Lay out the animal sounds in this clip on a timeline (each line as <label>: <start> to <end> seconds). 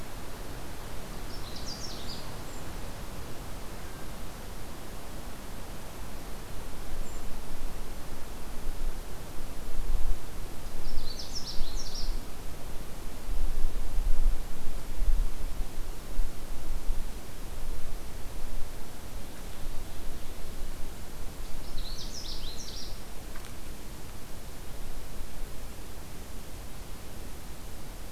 Canada Warbler (Cardellina canadensis): 1.1 to 2.5 seconds
Golden-crowned Kinglet (Regulus satrapa): 1.8 to 2.6 seconds
Golden-crowned Kinglet (Regulus satrapa): 6.9 to 7.2 seconds
Canada Warbler (Cardellina canadensis): 10.7 to 12.3 seconds
Canada Warbler (Cardellina canadensis): 21.3 to 23.1 seconds